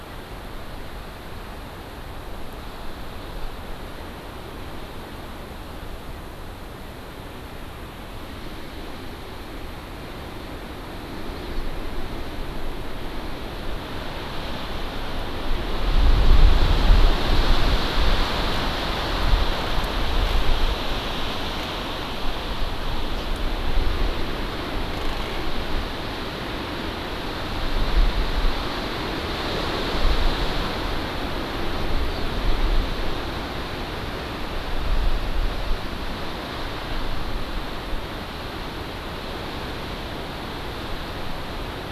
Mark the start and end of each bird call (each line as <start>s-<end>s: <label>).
11.3s-11.6s: Hawaii Amakihi (Chlorodrepanis virens)